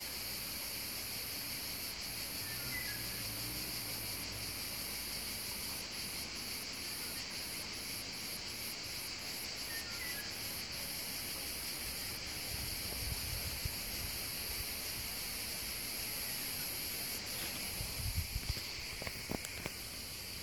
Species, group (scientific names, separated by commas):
Cicadatra atra, Cicadidae